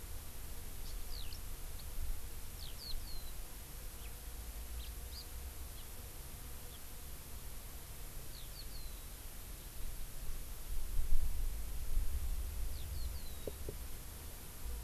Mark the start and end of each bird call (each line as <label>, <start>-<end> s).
House Finch (Haemorhous mexicanus), 0.8-0.9 s
Eurasian Skylark (Alauda arvensis), 1.0-1.4 s
Eurasian Skylark (Alauda arvensis), 2.5-3.3 s
House Finch (Haemorhous mexicanus), 3.9-4.1 s
Hawaii Amakihi (Chlorodrepanis virens), 5.0-5.2 s
Hawaii Amakihi (Chlorodrepanis virens), 5.7-5.8 s
Eurasian Skylark (Alauda arvensis), 8.3-9.0 s
Eurasian Skylark (Alauda arvensis), 12.6-13.5 s